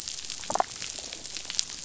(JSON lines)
{"label": "biophony, damselfish", "recorder": "SoundTrap 500"}